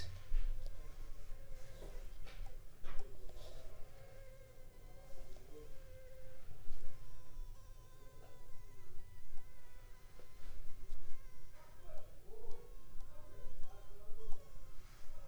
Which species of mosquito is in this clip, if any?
Anopheles funestus s.s.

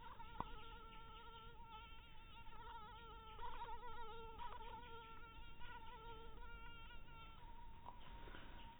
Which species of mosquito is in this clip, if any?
mosquito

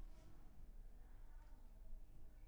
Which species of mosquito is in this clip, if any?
Anopheles arabiensis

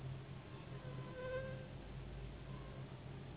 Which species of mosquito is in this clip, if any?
Anopheles gambiae s.s.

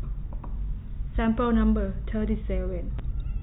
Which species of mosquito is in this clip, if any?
no mosquito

